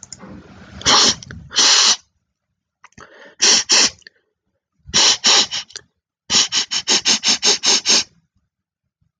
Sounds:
Sniff